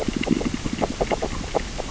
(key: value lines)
label: biophony, grazing
recorder: SoundTrap 600 or HydroMoth